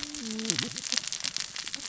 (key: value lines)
label: biophony, cascading saw
recorder: SoundTrap 600 or HydroMoth